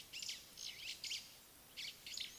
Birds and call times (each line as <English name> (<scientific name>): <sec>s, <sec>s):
White-browed Sparrow-Weaver (Plocepasser mahali): 1.1s